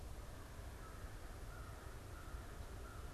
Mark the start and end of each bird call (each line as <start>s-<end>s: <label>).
0.0s-3.1s: American Crow (Corvus brachyrhynchos)